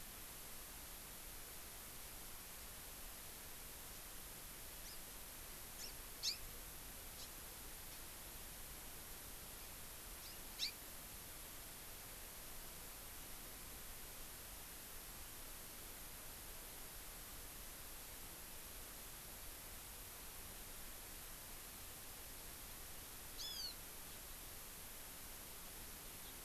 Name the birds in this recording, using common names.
Hawaii Amakihi